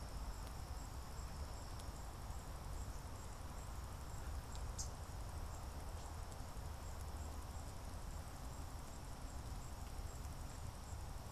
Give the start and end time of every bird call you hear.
4.5s-5.2s: unidentified bird

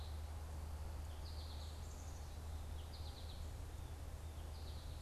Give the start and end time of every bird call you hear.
0.0s-5.0s: American Goldfinch (Spinus tristis)

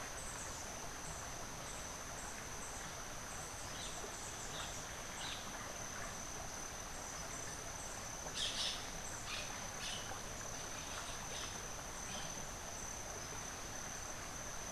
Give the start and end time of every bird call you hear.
8.2s-12.3s: White-crowned Parrot (Pionus senilis)

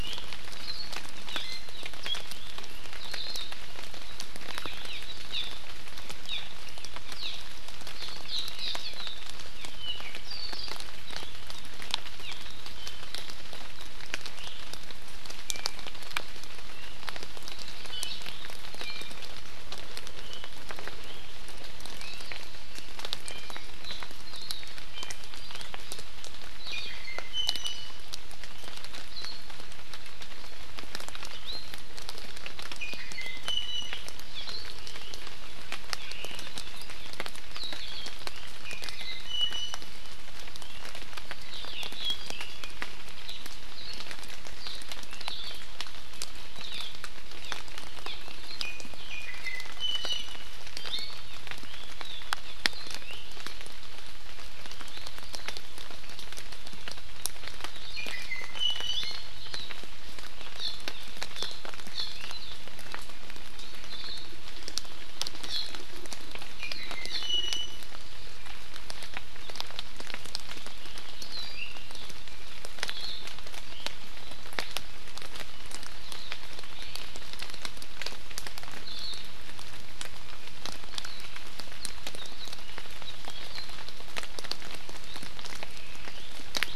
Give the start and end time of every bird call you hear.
0.0s-0.2s: Iiwi (Drepanis coccinea)
1.3s-1.4s: Hawaii Amakihi (Chlorodrepanis virens)
1.4s-1.7s: Iiwi (Drepanis coccinea)
3.0s-3.5s: Hawaii Akepa (Loxops coccineus)
4.6s-5.0s: Hawaii Amakihi (Chlorodrepanis virens)
5.3s-5.5s: Hawaii Amakihi (Chlorodrepanis virens)
6.3s-6.4s: Hawaii Amakihi (Chlorodrepanis virens)
7.1s-7.4s: Hawaii Amakihi (Chlorodrepanis virens)
9.6s-10.8s: Apapane (Himatione sanguinea)
12.2s-12.4s: Hawaii Amakihi (Chlorodrepanis virens)
12.7s-13.0s: Apapane (Himatione sanguinea)
15.5s-15.8s: Apapane (Himatione sanguinea)
17.9s-18.2s: Apapane (Himatione sanguinea)
18.7s-19.2s: Apapane (Himatione sanguinea)
23.2s-23.6s: Apapane (Himatione sanguinea)
24.3s-24.7s: Hawaii Akepa (Loxops coccineus)
24.9s-25.2s: Apapane (Himatione sanguinea)
26.6s-28.1s: Iiwi (Drepanis coccinea)
31.4s-31.9s: Iiwi (Drepanis coccinea)
32.8s-34.1s: Iiwi (Drepanis coccinea)
36.0s-36.5s: Omao (Myadestes obscurus)
38.6s-39.9s: Iiwi (Drepanis coccinea)
42.0s-42.8s: Apapane (Himatione sanguinea)
45.2s-45.7s: Hawaii Akepa (Loxops coccineus)
46.5s-46.9s: Hawaii Amakihi (Chlorodrepanis virens)
47.4s-47.6s: Hawaii Amakihi (Chlorodrepanis virens)
48.0s-48.2s: Hawaii Amakihi (Chlorodrepanis virens)
48.6s-51.3s: Iiwi (Drepanis coccinea)
57.7s-59.3s: Iiwi (Drepanis coccinea)
63.9s-64.3s: Hawaii Akepa (Loxops coccineus)
66.6s-67.9s: Iiwi (Drepanis coccinea)
71.4s-71.9s: Iiwi (Drepanis coccinea)
72.9s-73.2s: Hawaii Akepa (Loxops coccineus)
78.8s-79.2s: Hawaii Akepa (Loxops coccineus)

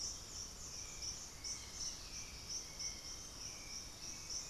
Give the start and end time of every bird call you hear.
0.0s-4.5s: Hauxwell's Thrush (Turdus hauxwelli)
0.0s-4.5s: Russet-backed Oropendola (Psarocolius angustifrons)
1.6s-3.9s: Chestnut-winged Foliage-gleaner (Dendroma erythroptera)

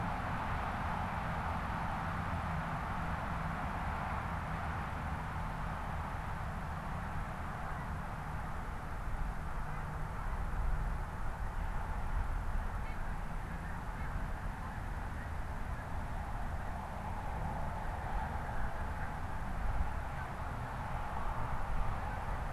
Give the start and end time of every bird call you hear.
7.4s-22.5s: Snow Goose (Anser caerulescens)

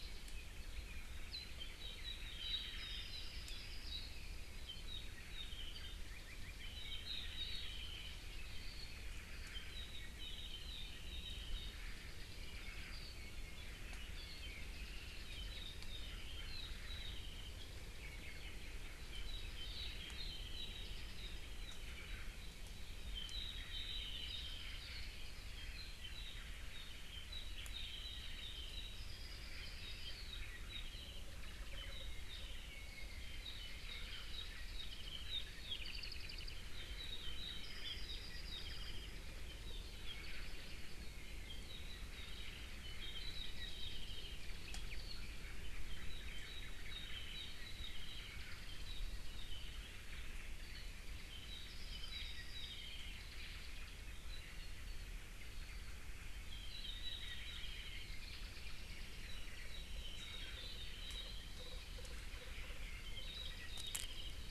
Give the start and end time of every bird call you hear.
0.1s-4.1s: Apapane (Himatione sanguinea)
4.7s-8.1s: Apapane (Himatione sanguinea)
9.4s-11.7s: Apapane (Himatione sanguinea)
12.6s-17.7s: Apapane (Himatione sanguinea)
17.9s-19.1s: Omao (Myadestes obscurus)
19.0s-22.6s: Apapane (Himatione sanguinea)
23.0s-50.1s: Apapane (Himatione sanguinea)
23.6s-24.6s: Omao (Myadestes obscurus)
26.0s-27.1s: Omao (Myadestes obscurus)
31.4s-32.0s: Omao (Myadestes obscurus)
44.3s-45.1s: Omao (Myadestes obscurus)
50.1s-51.1s: Omao (Myadestes obscurus)
50.6s-55.9s: Apapane (Himatione sanguinea)
55.4s-56.0s: Omao (Myadestes obscurus)
56.3s-64.5s: Apapane (Himatione sanguinea)
59.5s-59.7s: Omao (Myadestes obscurus)

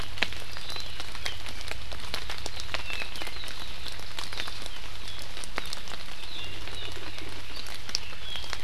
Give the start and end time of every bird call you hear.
0.5s-0.9s: Hawaii Amakihi (Chlorodrepanis virens)
2.6s-3.5s: Apapane (Himatione sanguinea)
8.0s-8.6s: Apapane (Himatione sanguinea)

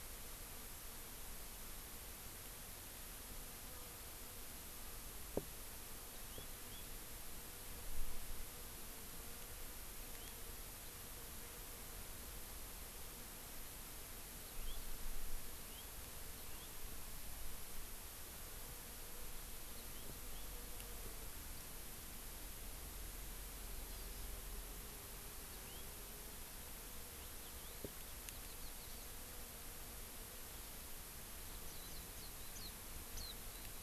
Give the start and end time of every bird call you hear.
6.3s-6.9s: House Finch (Haemorhous mexicanus)
14.5s-14.8s: House Finch (Haemorhous mexicanus)
15.5s-15.9s: House Finch (Haemorhous mexicanus)
16.4s-16.7s: House Finch (Haemorhous mexicanus)
19.8s-20.5s: House Finch (Haemorhous mexicanus)
23.9s-24.3s: Hawaii Amakihi (Chlorodrepanis virens)
25.5s-25.9s: House Finch (Haemorhous mexicanus)
27.2s-27.8s: Hawaii Elepaio (Chasiempis sandwichensis)
28.3s-29.1s: Warbling White-eye (Zosterops japonicus)
31.7s-31.9s: House Finch (Haemorhous mexicanus)
31.9s-32.3s: Hawaii Amakihi (Chlorodrepanis virens)
32.6s-32.7s: Hawaii Amakihi (Chlorodrepanis virens)
33.1s-33.7s: Hawaii Amakihi (Chlorodrepanis virens)

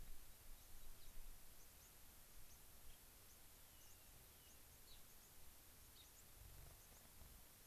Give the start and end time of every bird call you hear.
0.0s-1.1s: Rock Wren (Salpinctes obsoletus)
0.5s-7.7s: White-crowned Sparrow (Zonotrichia leucophrys)
2.7s-3.0s: Gray-crowned Rosy-Finch (Leucosticte tephrocotis)
3.4s-4.6s: Rock Wren (Salpinctes obsoletus)
4.8s-5.0s: Gray-crowned Rosy-Finch (Leucosticte tephrocotis)
5.8s-6.1s: Gray-crowned Rosy-Finch (Leucosticte tephrocotis)

